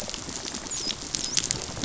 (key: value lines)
label: biophony, dolphin
recorder: SoundTrap 500